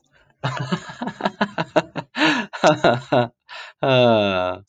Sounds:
Laughter